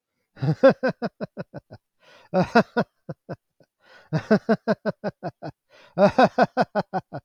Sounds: Laughter